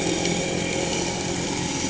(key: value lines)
label: anthrophony, boat engine
recorder: HydroMoth